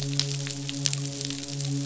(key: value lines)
label: biophony, midshipman
recorder: SoundTrap 500